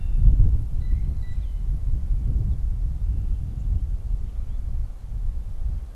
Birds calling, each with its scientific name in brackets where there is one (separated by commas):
Blue Jay (Cyanocitta cristata)